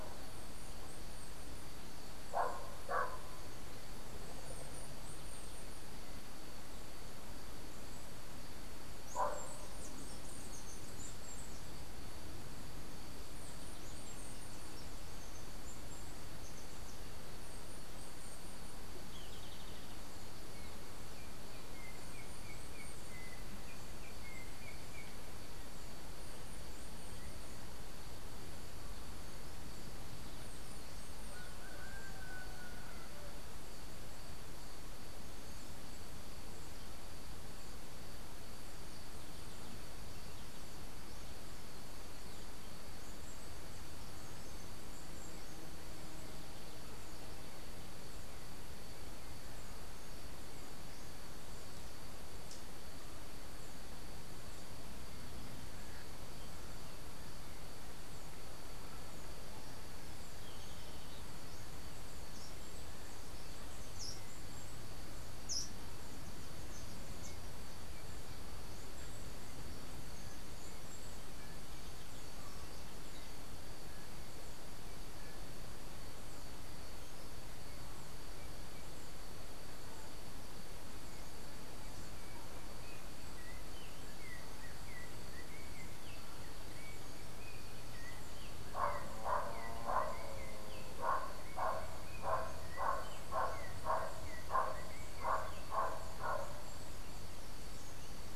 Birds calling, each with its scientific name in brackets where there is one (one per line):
Yellow-backed Oriole (Icterus chrysater)
Golden-faced Tyrannulet (Zimmerius chrysops)
unidentified bird
Chestnut-capped Brushfinch (Arremon brunneinucha)